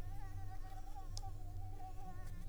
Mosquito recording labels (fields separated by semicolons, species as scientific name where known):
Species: Anopheles arabiensis; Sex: female; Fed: unfed; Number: one; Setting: cup